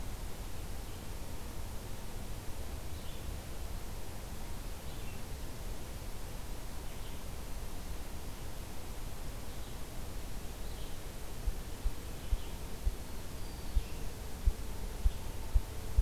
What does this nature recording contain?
Red-eyed Vireo, Black-throated Blue Warbler, Ruffed Grouse